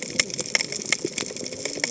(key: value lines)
label: biophony, cascading saw
recorder: HydroMoth